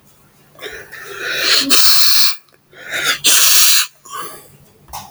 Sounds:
Sniff